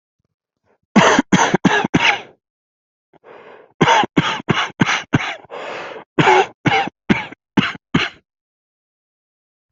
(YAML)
expert_labels:
- quality: ok
  cough_type: dry
  dyspnea: true
  wheezing: false
  stridor: false
  choking: false
  congestion: false
  nothing: false
  diagnosis: obstructive lung disease
  severity: severe
age: 19
gender: male
respiratory_condition: true
fever_muscle_pain: false
status: symptomatic